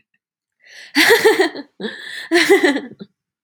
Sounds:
Laughter